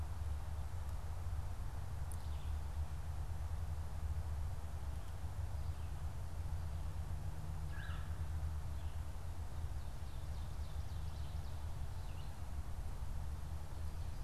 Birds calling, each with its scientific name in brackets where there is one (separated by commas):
Red-bellied Woodpecker (Melanerpes carolinus), Red-eyed Vireo (Vireo olivaceus)